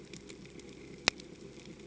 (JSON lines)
{"label": "ambient", "recorder": "HydroMoth"}